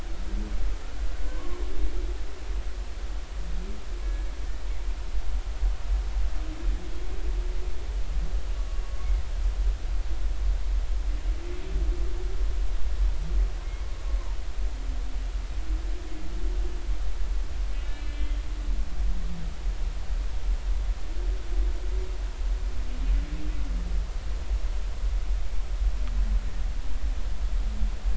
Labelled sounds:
1.2	1.6	humpback whale, 0.93 to 1.2 kHz
13.6	13.9	humpback whale, 2.1 to 2.2 kHz
17.8	18.4	humpback whale, 2.8 to 3.3 kHz

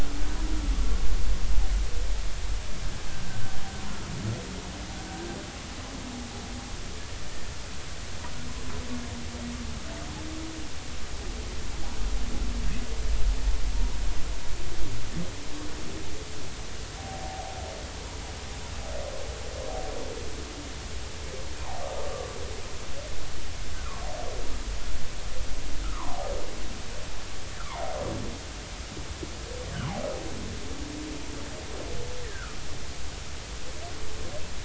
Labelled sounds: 17.0	17.4	humpback whale, 0.80 to 0.90 kHz
22.1	22.4	humpback whale, 1.1 to 1.2 kHz
23.7	24.0	humpback whale, 0.93 to 1.6 kHz
25.8	26.3	humpback whale, 0.80 to 1.4 kHz
27.6	27.9	humpback whale, 0.80 to 1.2 kHz
32.2	32.6	humpback whale, 1.2 to 2.0 kHz

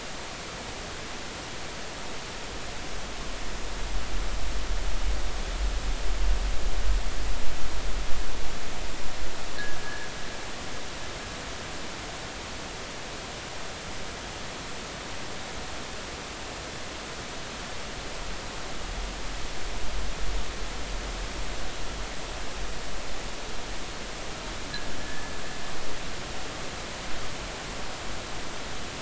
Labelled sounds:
9.8	10.1	fishing gear, 1.6 to 1.8 kHz
25.0	25.3	fishing gear, 1.7 to 1.8 kHz

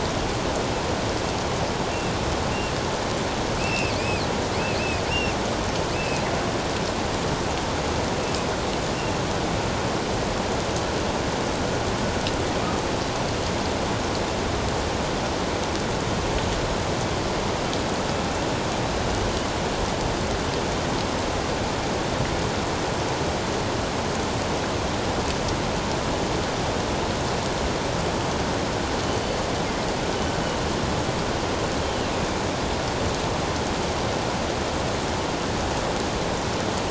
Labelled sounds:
3.6	4.2	killer whale, northern resident, G clan, 2.3 to 2.8 kHz
5.1	5.3	killer whale, northern resident, G clan, 2.7 to 5.6 kHz
5.9	6.2	killer whale, northern resident, G clan, 2.4 to 2.7 kHz
8.9	9.2	killer whale, northern resident, G clan, 2.7 to 2.9 kHz

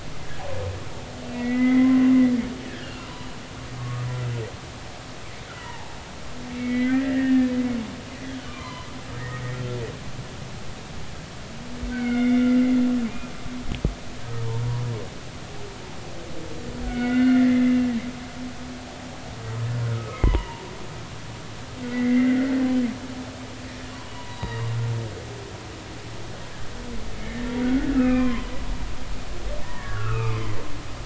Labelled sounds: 1.3	3.3	humpback whale, 0.93 to 3.0 kHz
3.8	4.1	humpback whale, 1.1 to 1.2 kHz
5.5	7.5	humpback whale, 0.80 to 3.4 kHz
8.5	9.6	humpback whale, 0.90 to 2.0 kHz
11.9	12.5	humpback whale, 1.4 to 3.6 kHz
16.9	17.8	humpback whale, 1.4 to 2.9 kHz
19.9	20.6	humpback whale, 0.83 to 3.1 kHz
21.9	22.5	humpback whale, 1.3 to 2.2 kHz
24.1	24.7	humpback whale, 0.90 to 4.0 kHz
27.2	28.5	humpback whale, 0.96 to 3.2 kHz
29.6	30.4	humpback whale, 0.86 to 2.8 kHz

